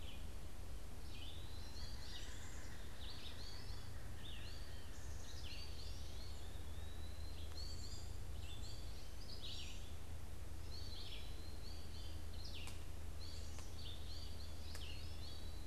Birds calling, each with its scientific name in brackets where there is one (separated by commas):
American Goldfinch (Spinus tristis), Red-eyed Vireo (Vireo olivaceus), Black-capped Chickadee (Poecile atricapillus), Eastern Wood-Pewee (Contopus virens)